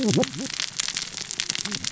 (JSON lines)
{"label": "biophony, cascading saw", "recorder": "SoundTrap 600 or HydroMoth"}